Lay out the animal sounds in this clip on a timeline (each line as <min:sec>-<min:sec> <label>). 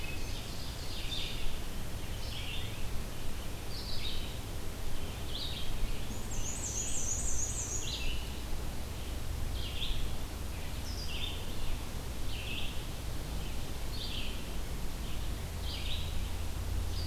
0:00.0-0:01.4 Ovenbird (Seiurus aurocapilla)
0:00.0-0:17.1 Red-eyed Vireo (Vireo olivaceus)
0:04.6-0:06.9 Ovenbird (Seiurus aurocapilla)
0:06.0-0:08.1 Black-and-white Warbler (Mniotilta varia)